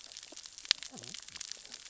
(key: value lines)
label: biophony, cascading saw
recorder: SoundTrap 600 or HydroMoth